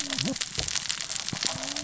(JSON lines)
{"label": "biophony, cascading saw", "recorder": "SoundTrap 600 or HydroMoth"}